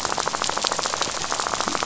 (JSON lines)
{"label": "biophony, rattle", "recorder": "SoundTrap 500"}